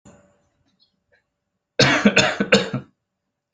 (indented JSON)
{
  "expert_labels": [
    {
      "quality": "good",
      "cough_type": "dry",
      "dyspnea": false,
      "wheezing": false,
      "stridor": false,
      "choking": false,
      "congestion": false,
      "nothing": true,
      "diagnosis": "healthy cough",
      "severity": "pseudocough/healthy cough"
    }
  ],
  "age": 23,
  "gender": "male",
  "respiratory_condition": false,
  "fever_muscle_pain": false,
  "status": "healthy"
}